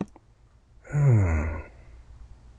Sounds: Sigh